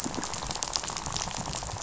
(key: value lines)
label: biophony, rattle
recorder: SoundTrap 500